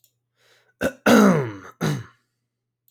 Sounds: Throat clearing